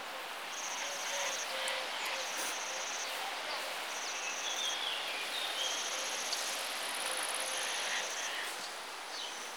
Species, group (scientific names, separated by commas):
Svercus palmetorum, Orthoptera